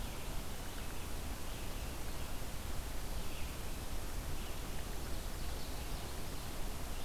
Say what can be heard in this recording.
Red-eyed Vireo